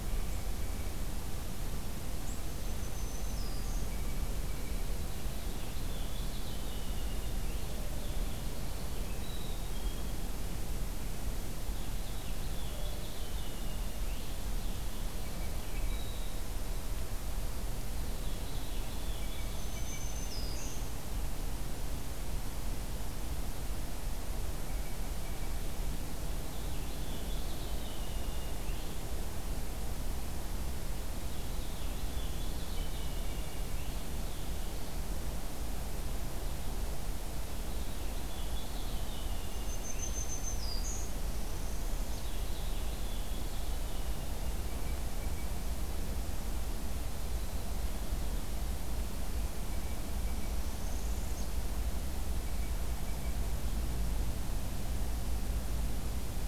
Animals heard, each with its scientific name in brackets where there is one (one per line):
Black-capped Chickadee (Poecile atricapillus)
Black-throated Green Warbler (Setophaga virens)
Blue Jay (Cyanocitta cristata)
Northern Parula (Setophaga americana)
Purple Finch (Haemorhous purpureus)